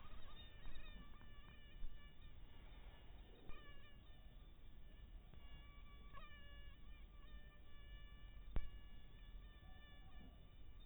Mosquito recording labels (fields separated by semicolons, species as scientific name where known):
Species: mosquito; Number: one; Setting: cup